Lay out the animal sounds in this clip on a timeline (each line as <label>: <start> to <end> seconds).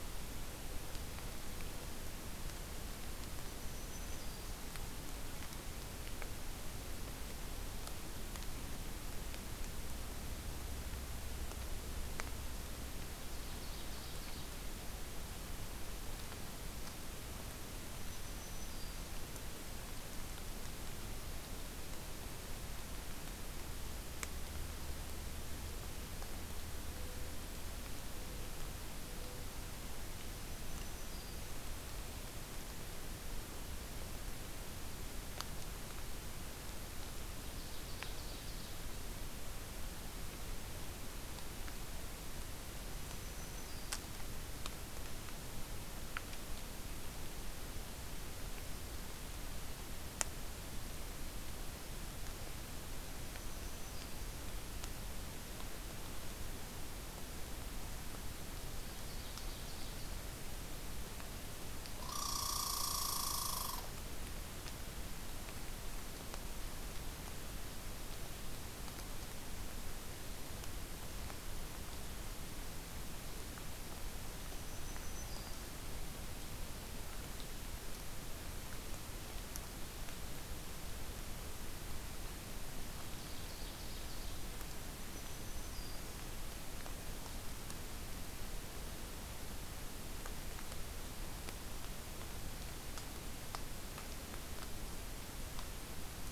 Black-throated Green Warbler (Setophaga virens): 3.5 to 4.6 seconds
Ovenbird (Seiurus aurocapilla): 13.0 to 14.5 seconds
Black-throated Green Warbler (Setophaga virens): 17.9 to 19.1 seconds
Black-throated Green Warbler (Setophaga virens): 30.4 to 31.5 seconds
Ovenbird (Seiurus aurocapilla): 37.5 to 38.8 seconds
Black-throated Green Warbler (Setophaga virens): 43.0 to 44.0 seconds
Black-throated Green Warbler (Setophaga virens): 53.2 to 54.3 seconds
Ovenbird (Seiurus aurocapilla): 58.6 to 60.1 seconds
Red Squirrel (Tamiasciurus hudsonicus): 62.0 to 63.8 seconds
Black-throated Green Warbler (Setophaga virens): 74.3 to 75.6 seconds
Ovenbird (Seiurus aurocapilla): 83.0 to 84.5 seconds
Black-throated Green Warbler (Setophaga virens): 85.0 to 86.2 seconds